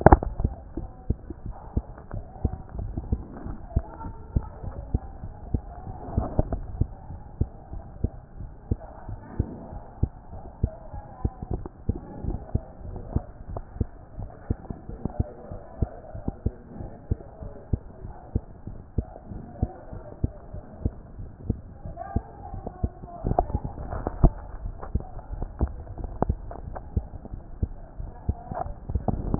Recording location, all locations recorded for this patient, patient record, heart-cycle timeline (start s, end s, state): mitral valve (MV)
aortic valve (AV)+pulmonary valve (PV)+tricuspid valve (TV)+mitral valve (MV)
#Age: Child
#Sex: Female
#Height: 128.0 cm
#Weight: 22.3 kg
#Pregnancy status: False
#Murmur: Absent
#Murmur locations: nan
#Most audible location: nan
#Systolic murmur timing: nan
#Systolic murmur shape: nan
#Systolic murmur grading: nan
#Systolic murmur pitch: nan
#Systolic murmur quality: nan
#Diastolic murmur timing: nan
#Diastolic murmur shape: nan
#Diastolic murmur grading: nan
#Diastolic murmur pitch: nan
#Diastolic murmur quality: nan
#Outcome: Normal
#Campaign: 2014 screening campaign
0.00	12.86	unannotated
12.86	12.98	S1
12.98	13.14	systole
13.14	13.24	S2
13.24	13.50	diastole
13.50	13.62	S1
13.62	13.78	systole
13.78	13.88	S2
13.88	14.18	diastole
14.18	14.30	S1
14.30	14.48	systole
14.48	14.58	S2
14.58	14.90	diastole
14.90	15.02	S1
15.02	15.18	systole
15.18	15.28	S2
15.28	15.52	diastole
15.52	15.62	S1
15.62	15.80	systole
15.80	15.90	S2
15.90	16.16	diastole
16.16	16.32	S1
16.32	16.44	systole
16.44	16.54	S2
16.54	16.78	diastole
16.78	16.90	S1
16.90	17.10	systole
17.10	17.20	S2
17.20	17.42	diastole
17.42	17.54	S1
17.54	17.72	systole
17.72	17.80	S2
17.80	18.04	diastole
18.04	18.14	S1
18.14	18.34	systole
18.34	18.44	S2
18.44	18.68	diastole
18.68	18.78	S1
18.78	18.96	systole
18.96	19.06	S2
19.06	19.32	diastole
19.32	19.42	S1
19.42	19.60	systole
19.60	19.70	S2
19.70	19.94	diastole
19.94	20.04	S1
20.04	20.22	systole
20.22	20.32	S2
20.32	20.54	diastole
20.54	20.64	S1
20.64	20.82	systole
20.82	20.92	S2
20.92	21.18	diastole
21.18	21.30	S1
21.30	21.48	systole
21.48	21.58	S2
21.58	21.86	diastole
21.86	21.96	S1
21.96	22.14	systole
22.14	22.24	S2
22.24	22.52	diastole
22.52	22.64	S1
22.64	22.82	systole
22.82	29.39	unannotated